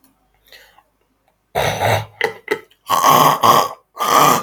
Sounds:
Throat clearing